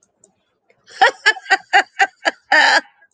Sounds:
Laughter